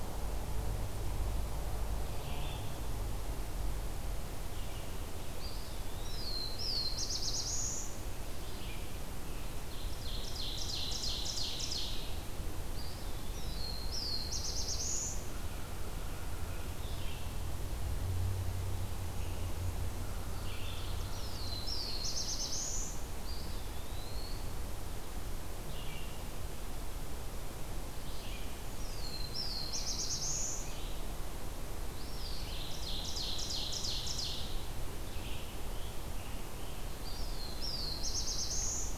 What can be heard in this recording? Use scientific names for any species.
Vireo olivaceus, Contopus virens, Setophaga caerulescens, Seiurus aurocapilla, Setophaga fusca, Piranga olivacea